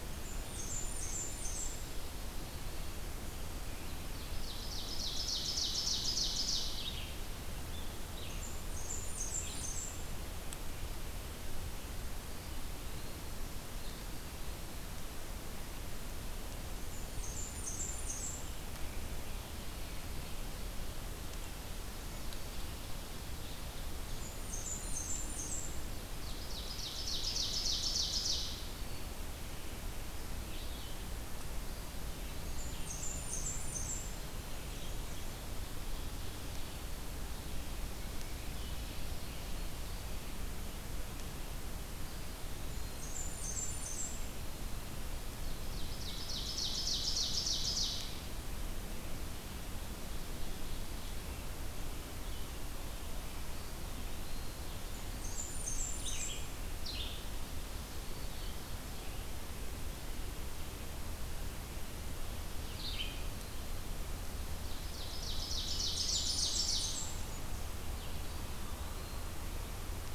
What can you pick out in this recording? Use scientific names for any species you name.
Setophaga fusca, Vireo olivaceus, Seiurus aurocapilla, Contopus virens, Setophaga virens, Mniotilta varia